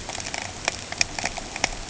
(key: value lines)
label: ambient
recorder: HydroMoth